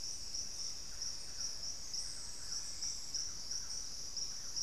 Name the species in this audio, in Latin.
Campylorhynchus turdinus